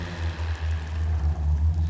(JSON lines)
{"label": "anthrophony, boat engine", "recorder": "SoundTrap 500"}